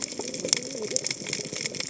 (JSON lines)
{"label": "biophony, cascading saw", "recorder": "HydroMoth"}